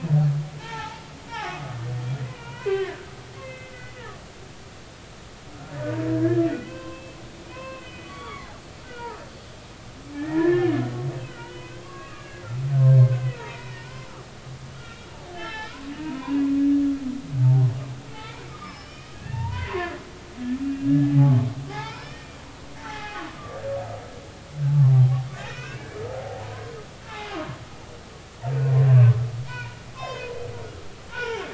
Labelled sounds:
0.6	1.7	humpback whale, 0.80 to 5.7 kHz
2.2	3.1	humpback whale, 0.90 to 3.2 kHz
3.4	3.9	humpback whale, 1.9 to 2.7 kHz
5.8	7.2	humpback whale, 0.99 to 3.2 kHz
7.4	8.5	humpback whale, 0.93 to 4.7 kHz
8.8	10.7	humpback whale, 1.1 to 2.0 kHz
11.3	12.4	humpback whale, 0.90 to 3.0 kHz
13.0	13.7	humpback whale, 0.83 to 2.5 kHz
14.7	16.4	humpback whale, 0.80 to 5.5 kHz
17.4	21.4	humpback whale, 0.80 to 5.5 kHz
21.7	23.2	humpback whale, 0.80 to 5.6 kHz
25.4	26.7	humpback whale, 0.80 to 2.7 kHz
27.0	27.6	humpback whale, 0.80 to 2.7 kHz
29.4	30.3	humpback whale, 0.90 to 5.3 kHz
31.1	31.5	humpback whale, 0.80 to 2.9 kHz

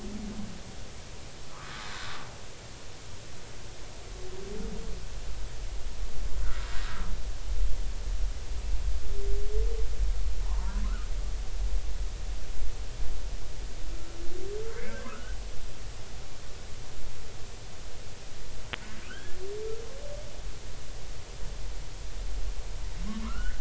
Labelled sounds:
1.5	2.2	humpback whale, 0.96 to 1.6 kHz
6.4	6.7	humpback whale, 1.2 to 1.6 kHz
10.4	11.1	humpback whale, 0.86 to 1.5 kHz
13.9	14.2	humpback whale, 1.3 to 1.4 kHz
14.9	15.4	humpback whale, 0.99 to 1.7 kHz
19.1	19.4	humpback whale, 1.2 to 3.4 kHz
23.2	23.5	humpback whale, 0.96 to 1.7 kHz

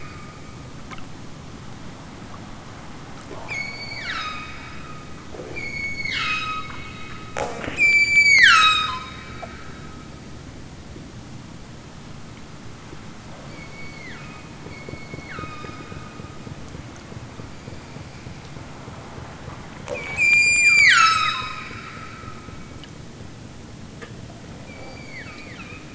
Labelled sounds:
3.5	4.6	killer whale, southern Alaska resident, 0.83 to 8.0 kHz
5.6	6.7	killer whale, southern Alaska resident, 0.92 to 8.0 kHz
7.7	9.1	killer whale, southern Alaska resident, 0.64 to 8.0 kHz
13.4	15.9	killer whale, southern Alaska resident, 0.83 to 7.0 kHz
20.0	21.6	killer whale, southern Alaska resident, 0.69 to 8.0 kHz
24.6	25.9	killer whale, southern Alaska resident, 0.83 to 7.0 kHz

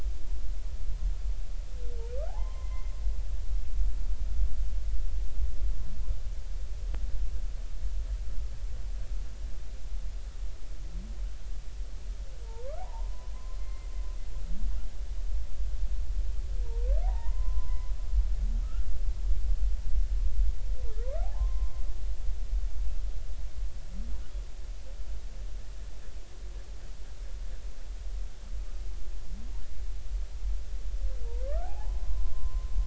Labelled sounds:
2.3	2.9	humpback whale, 0.80 to 2.1 kHz
12.4	12.8	humpback whale, 0.86 to 1.5 kHz
13.6	14.3	humpback whale, 0.80 to 2.1 kHz
17.0	17.9	humpback whale, 0.80 to 1.1 kHz
18.6	18.9	humpback whale, 1.2 to 1.6 kHz
21.2	21.8	humpback whale, 0.80 to 1.1 kHz
31.4	32.7	humpback whale, 0.80 to 1.6 kHz

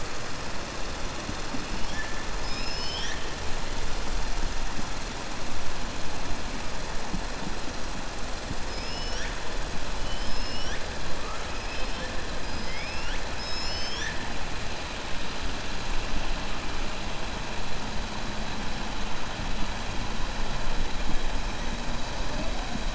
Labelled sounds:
2.3	3.3	killer whale, 1.7 to 6.2 kHz
11.6	12.1	killer whale, 2.5 to 5.1 kHz
12.4	13.2	killer whale, 1.4 to 5.7 kHz

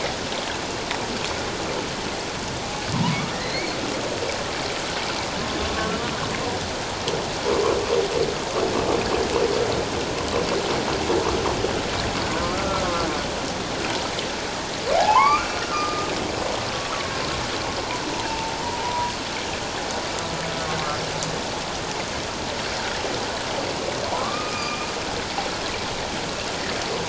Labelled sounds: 5.6	5.9	humpback whale, 1.1 to 1.2 kHz
12.4	13.1	humpback whale, 1.1 to 1.4 kHz
14.9	16.1	humpback whale, 0.78 to 2.5 kHz
18.3	18.5	humpback whale, 0.84 to 0.94 kHz
18.8	19.1	humpback whale, 0.91 to 1.0 kHz
24.1	24.9	humpback whale, 0.78 to 2.6 kHz

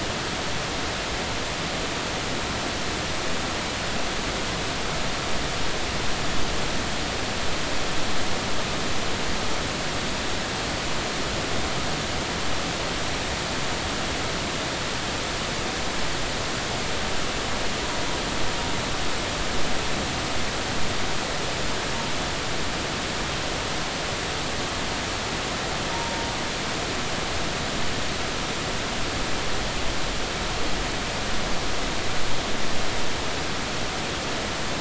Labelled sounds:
25.9	26.3	humpback whale, 0.90 to 0.96 kHz

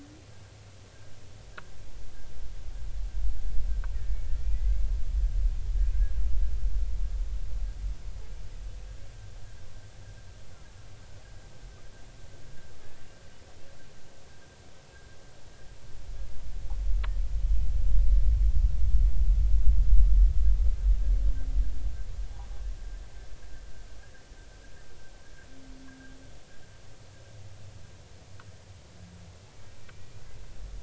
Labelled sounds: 3.9	4.9	humpback whale, 1.7 to 2.3 kHz
5.2	5.5	humpback whale, 1.8 to 1.9 kHz
29.9	30.2	humpback whale, 2.3 to 2.5 kHz

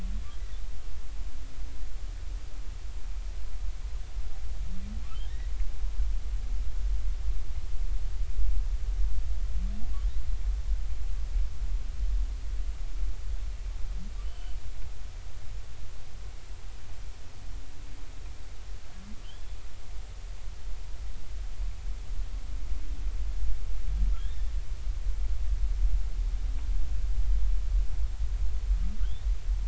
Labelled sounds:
14.2	14.6	humpback whale, 2.9 to 3.2 kHz
19.2	19.6	humpback whale, 2.9 to 3.5 kHz
24.2	24.5	humpback whale, 1.6 to 3.7 kHz

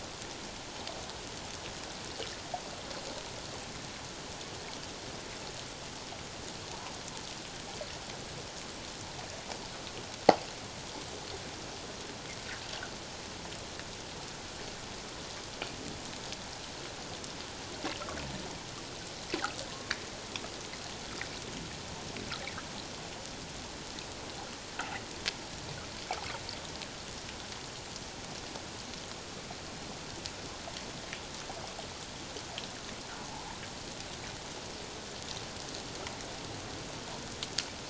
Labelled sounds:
19.7	19.9	humpback whale, 0.97 to 1.2 kHz
33.3	33.6	fish, 0.78 to 1.1 kHz

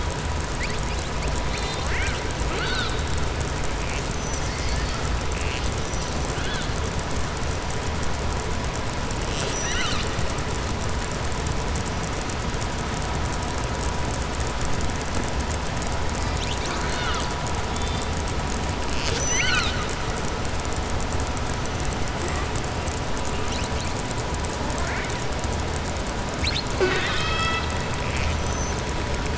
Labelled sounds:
1.2	3.0	killer whale, southern resident, 0.45 to 7.9 kHz
4.0	5.0	killer whale, southern resident, 4.2 to 7.6 kHz
6.3	6.7	killer whale, southern resident, 1.5 to 4.3 kHz
9.2	10.1	killer whale, southern resident, 1.3 to 7.8 kHz
16.1	17.3	killer whale, southern resident, 1.1 to 6.4 kHz
18.9	19.8	killer whale, southern resident, 1.3 to 7.7 kHz

